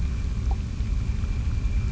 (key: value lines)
label: anthrophony, boat engine
recorder: SoundTrap 300